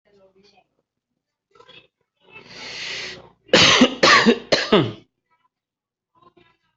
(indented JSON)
{
  "expert_labels": [
    {
      "quality": "ok",
      "cough_type": "dry",
      "dyspnea": true,
      "wheezing": false,
      "stridor": false,
      "choking": false,
      "congestion": false,
      "nothing": false,
      "diagnosis": "upper respiratory tract infection",
      "severity": "unknown"
    }
  ],
  "age": 36,
  "gender": "male",
  "respiratory_condition": true,
  "fever_muscle_pain": false,
  "status": "COVID-19"
}